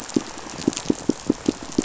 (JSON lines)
{"label": "biophony, pulse", "recorder": "SoundTrap 500"}